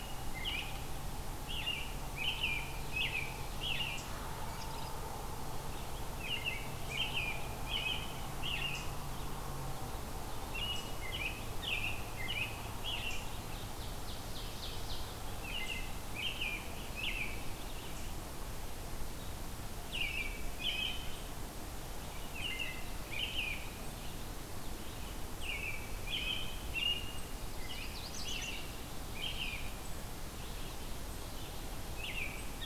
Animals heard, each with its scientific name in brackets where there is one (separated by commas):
American Robin (Turdus migratorius), Red-eyed Vireo (Vireo olivaceus), Ovenbird (Seiurus aurocapilla), Yellow-rumped Warbler (Setophaga coronata)